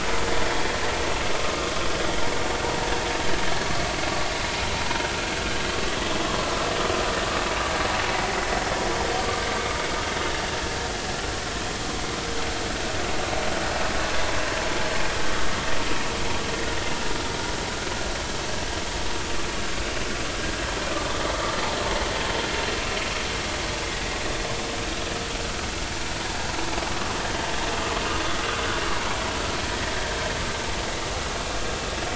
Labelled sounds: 1.4	1.7	vessel noise, 1.1 to 1.3 kHz

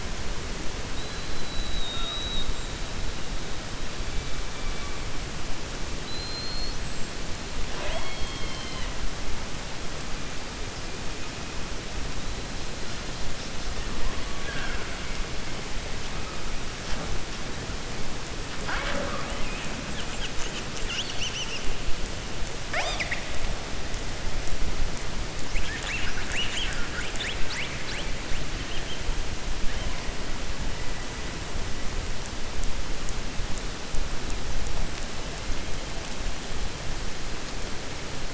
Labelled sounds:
5.9	6.8	killer whale, 4.0 to 5.2 kHz

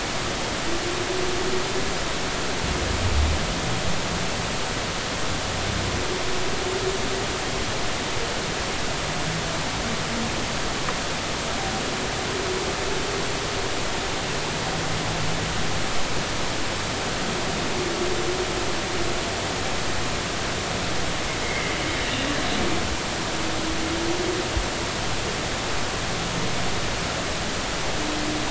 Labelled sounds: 21.4	21.7	humpback whale, 2.0 to 2.3 kHz

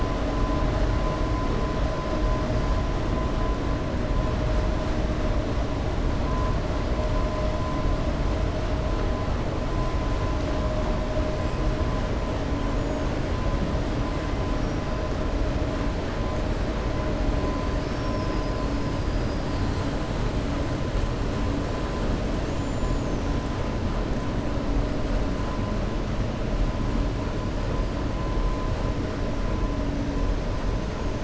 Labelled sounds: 17.7	18.6	killer whale, 4.5 to 5.6 kHz
22.3	23.3	killer whale, 5.8 to 7.5 kHz

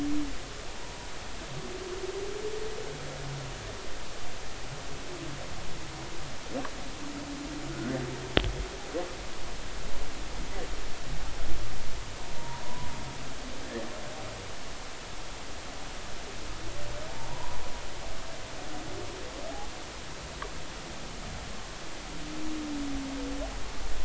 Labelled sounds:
0.8	1.1	humpback whale, 0.93 to 1.1 kHz
7.7	8.0	humpback whale, 1.4 to 1.6 kHz
12.4	12.9	humpback whale, 0.90 to 1.1 kHz
17.3	17.6	humpback whale, 0.86 to 1.1 kHz

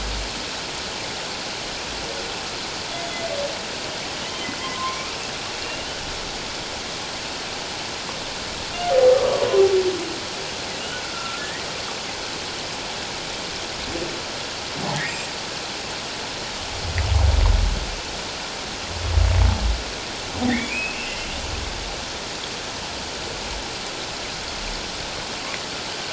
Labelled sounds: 4.2	5.9	humpback whale, 0.94 to 3.2 kHz
9.1	9.5	humpback whale, 0.91 to 1.3 kHz
11.0	11.7	humpback whale, 1.3 to 2.0 kHz
20.5	21.3	humpback whale, 1.8 to 2.8 kHz

